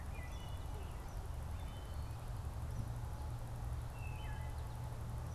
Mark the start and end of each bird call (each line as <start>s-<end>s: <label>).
0.0s-0.7s: Wood Thrush (Hylocichla mustelina)
0.0s-1.6s: Eastern Kingbird (Tyrannus tyrannus)
1.4s-4.5s: Wood Thrush (Hylocichla mustelina)